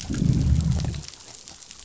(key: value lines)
label: biophony, growl
recorder: SoundTrap 500